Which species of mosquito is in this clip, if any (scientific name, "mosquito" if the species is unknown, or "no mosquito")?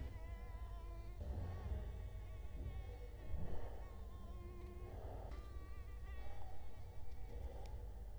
Culex quinquefasciatus